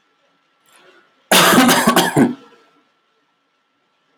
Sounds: Cough